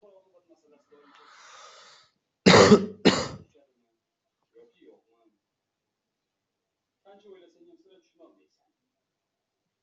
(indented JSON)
{
  "expert_labels": [
    {
      "quality": "ok",
      "cough_type": "unknown",
      "dyspnea": false,
      "wheezing": false,
      "stridor": false,
      "choking": false,
      "congestion": false,
      "nothing": true,
      "diagnosis": "upper respiratory tract infection",
      "severity": "mild"
    }
  ]
}